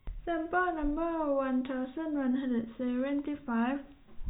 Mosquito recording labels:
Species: no mosquito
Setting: cup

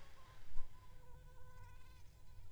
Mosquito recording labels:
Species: Aedes aegypti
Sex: female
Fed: unfed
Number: one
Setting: cup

